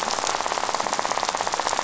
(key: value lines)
label: biophony, rattle
recorder: SoundTrap 500